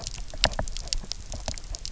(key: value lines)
label: biophony, knock
recorder: SoundTrap 300